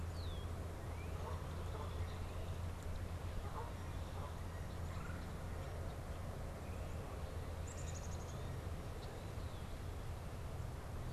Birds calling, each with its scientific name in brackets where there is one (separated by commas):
Canada Goose (Branta canadensis), Northern Cardinal (Cardinalis cardinalis), Red-bellied Woodpecker (Melanerpes carolinus), Black-capped Chickadee (Poecile atricapillus), Red-winged Blackbird (Agelaius phoeniceus)